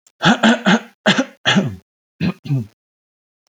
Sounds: Throat clearing